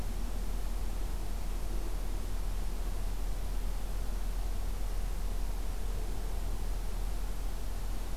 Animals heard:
forest ambience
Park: Acadia National Park